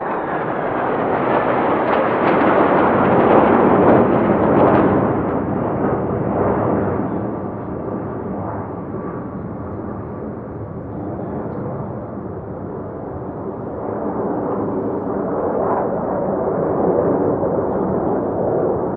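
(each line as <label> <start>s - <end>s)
A spacecraft whistles loudly as it accelerates quickly and takes off. 0.0s - 2.5s
Aircraft noises are loud at first, then settle into a smoother, less intense sound. 2.5s - 19.0s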